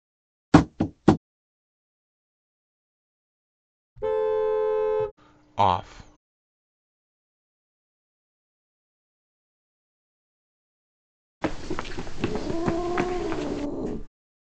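First, there is tapping. Then the sound of a vehicle horn rings out. After that, a voice says "Off." Later, someone runs. Meanwhile, growling is audible.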